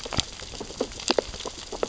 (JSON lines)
{"label": "biophony, sea urchins (Echinidae)", "recorder": "SoundTrap 600 or HydroMoth"}